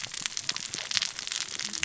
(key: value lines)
label: biophony, cascading saw
recorder: SoundTrap 600 or HydroMoth